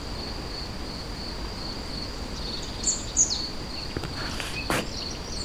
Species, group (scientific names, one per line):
Gryllus campestris
Orthoptera